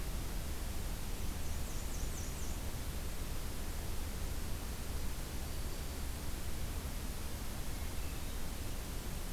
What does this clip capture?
Black-and-white Warbler, Black-throated Green Warbler, Hermit Thrush